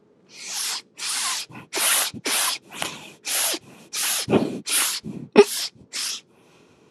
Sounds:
Sniff